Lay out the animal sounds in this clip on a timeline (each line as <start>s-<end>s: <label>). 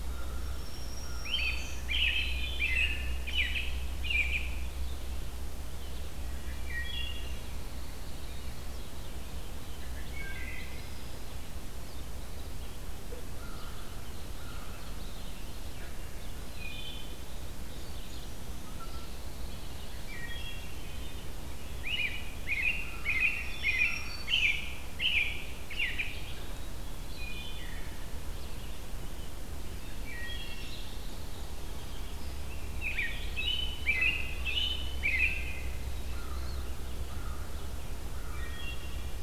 0.0s-1.5s: American Crow (Corvus brachyrhynchos)
0.3s-1.8s: Black-throated Green Warbler (Setophaga virens)
1.3s-4.7s: American Robin (Turdus migratorius)
2.2s-3.4s: Wood Thrush (Hylocichla mustelina)
6.5s-7.3s: Wood Thrush (Hylocichla mustelina)
7.0s-8.9s: Pine Warbler (Setophaga pinus)
9.9s-11.4s: Wood Thrush (Hylocichla mustelina)
13.1s-14.9s: American Crow (Corvus brachyrhynchos)
16.4s-17.1s: Wood Thrush (Hylocichla mustelina)
18.9s-20.3s: Pine Warbler (Setophaga pinus)
20.1s-21.1s: Wood Thrush (Hylocichla mustelina)
21.9s-26.2s: American Robin (Turdus migratorius)
23.1s-24.7s: Black-throated Green Warbler (Setophaga virens)
27.2s-27.8s: Wood Thrush (Hylocichla mustelina)
29.9s-31.5s: Pine Warbler (Setophaga pinus)
30.1s-30.9s: Wood Thrush (Hylocichla mustelina)
32.4s-35.8s: American Robin (Turdus migratorius)
36.1s-38.4s: American Crow (Corvus brachyrhynchos)
38.3s-39.0s: Wood Thrush (Hylocichla mustelina)